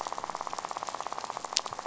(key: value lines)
label: biophony, rattle
recorder: SoundTrap 500